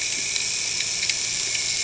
{"label": "anthrophony, boat engine", "recorder": "HydroMoth"}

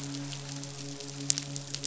{"label": "biophony, midshipman", "recorder": "SoundTrap 500"}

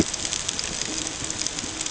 {"label": "ambient", "recorder": "HydroMoth"}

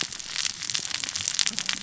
{"label": "biophony, cascading saw", "recorder": "SoundTrap 600 or HydroMoth"}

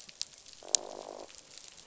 {"label": "biophony, croak", "recorder": "SoundTrap 500"}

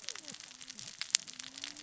{"label": "biophony, cascading saw", "recorder": "SoundTrap 600 or HydroMoth"}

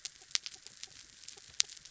{"label": "anthrophony, mechanical", "recorder": "SoundTrap 300"}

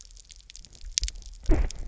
{"label": "biophony, double pulse", "recorder": "SoundTrap 300"}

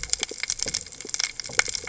{"label": "biophony", "recorder": "HydroMoth"}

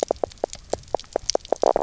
{"label": "biophony, knock croak", "recorder": "SoundTrap 300"}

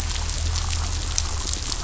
{"label": "anthrophony, boat engine", "recorder": "SoundTrap 500"}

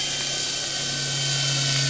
{"label": "anthrophony, boat engine", "recorder": "SoundTrap 500"}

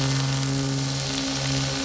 {"label": "anthrophony, boat engine", "recorder": "SoundTrap 500"}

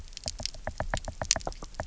{"label": "biophony, knock", "recorder": "SoundTrap 300"}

